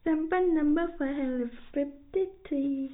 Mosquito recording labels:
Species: no mosquito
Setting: cup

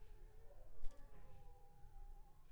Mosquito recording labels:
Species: Anopheles funestus s.s.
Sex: female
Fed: unfed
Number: one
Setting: cup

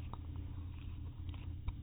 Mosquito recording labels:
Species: no mosquito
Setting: cup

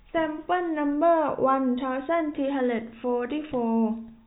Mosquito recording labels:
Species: no mosquito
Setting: cup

